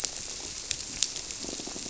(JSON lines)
{"label": "biophony, squirrelfish (Holocentrus)", "recorder": "SoundTrap 300"}